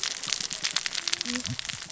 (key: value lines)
label: biophony, cascading saw
recorder: SoundTrap 600 or HydroMoth